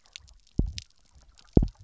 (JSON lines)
{"label": "biophony, double pulse", "recorder": "SoundTrap 300"}